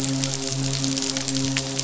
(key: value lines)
label: biophony, midshipman
recorder: SoundTrap 500